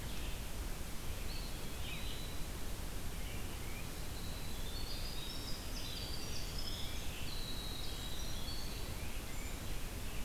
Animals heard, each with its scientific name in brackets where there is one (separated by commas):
Winter Wren (Troglodytes hiemalis), Eastern Wood-Pewee (Contopus virens), Red-eyed Vireo (Vireo olivaceus), Tufted Titmouse (Baeolophus bicolor)